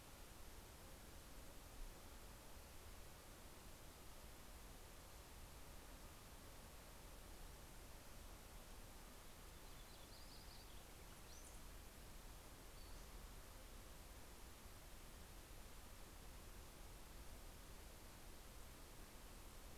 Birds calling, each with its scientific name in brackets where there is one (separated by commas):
Brown-headed Cowbird (Molothrus ater), Yellow-rumped Warbler (Setophaga coronata), Pacific-slope Flycatcher (Empidonax difficilis)